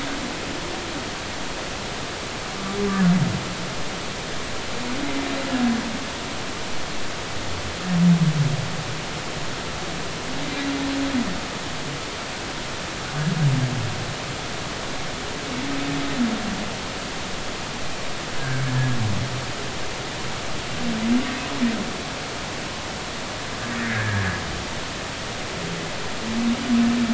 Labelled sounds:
18.4	18.6	humpback whale, 1.5 to 1.7 kHz
23.7	24.4	humpback whale, 1.6 to 2.3 kHz

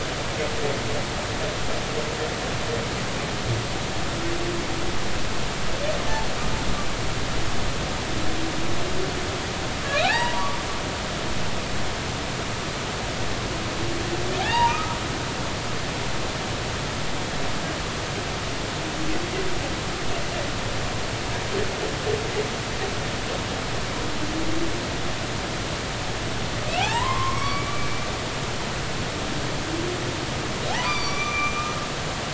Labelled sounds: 10.0	10.5	humpback whale, 0.80 to 3.0 kHz
14.4	15.0	humpback whale, 0.80 to 2.9 kHz
26.8	28.1	humpback whale, 0.80 to 2.9 kHz
30.7	31.8	humpback whale, 0.80 to 6.0 kHz

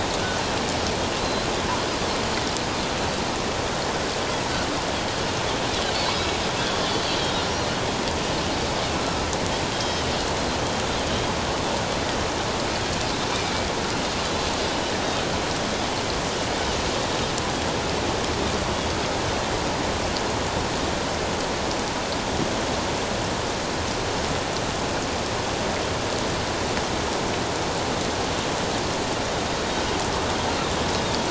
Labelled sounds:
1.2	1.5	Pacific white-sided dolphin, 4.0 to 4.2 kHz
9.7	10.0	Pacific white-sided dolphin, 3.1 to 5.2 kHz
13.3	13.7	Pacific white-sided dolphin, 2.2 to 2.5 kHz
14.3	14.5	Pacific white-sided dolphin, 3.9 to 4.1 kHz

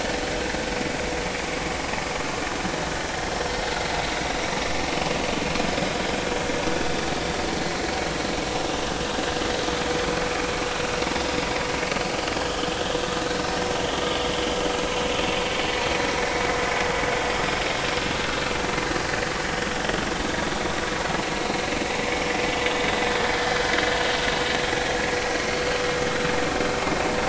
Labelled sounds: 12.3	12.6	vessel noise, 2.9 to 3.4 kHz
16.2	16.4	vessel noise, 1.9 to 2.3 kHz
22.7	23.0	vessel noise, 3.4 to 3.8 kHz

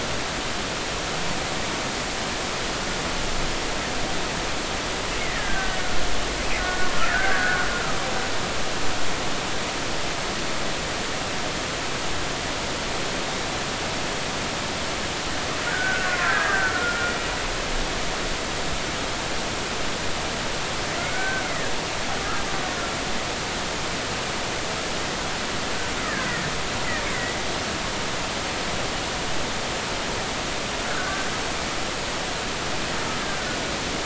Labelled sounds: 5.2	7.7	killer whale, Bigg's (transient), 1.2 to 2.2 kHz
15.6	17.1	killer whale, Bigg's (transient), 1.2 to 2.0 kHz
21.0	21.7	killer whale, Bigg's (transient), 1.3 to 2.3 kHz
26.1	26.4	killer whale, Bigg's (transient), 1.4 to 2.2 kHz
30.9	31.3	killer whale, Bigg's (transient), 1.3 to 1.6 kHz

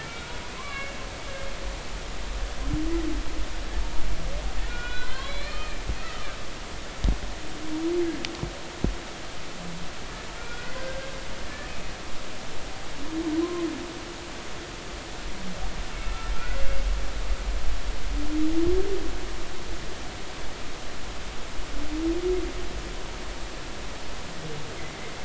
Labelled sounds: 0.0	0.9	humpback whale, 1.3 to 2.4 kHz
1.5	1.9	humpback whale, 0.99 to 1.2 kHz
4.6	6.3	humpback whale, 0.96 to 4.4 kHz
10.4	11.7	humpback whale, 1.3 to 1.9 kHz
13.4	13.7	humpback whale, 0.96 to 1.1 kHz
16.0	16.3	humpback whale, 1.2 to 1.4 kHz

